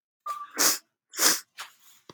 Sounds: Sniff